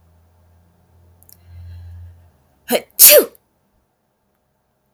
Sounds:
Sneeze